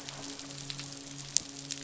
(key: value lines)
label: biophony, midshipman
recorder: SoundTrap 500